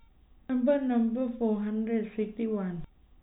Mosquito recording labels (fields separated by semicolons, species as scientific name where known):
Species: no mosquito; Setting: cup